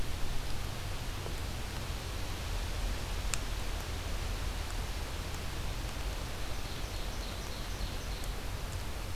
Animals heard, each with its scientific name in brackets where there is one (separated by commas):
Ovenbird (Seiurus aurocapilla)